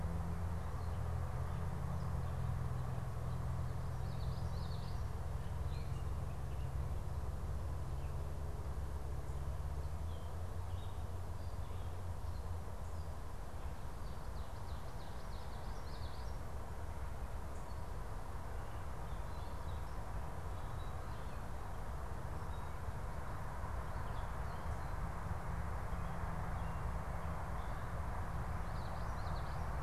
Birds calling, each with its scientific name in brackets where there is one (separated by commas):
Ovenbird (Seiurus aurocapilla), Common Yellowthroat (Geothlypis trichas)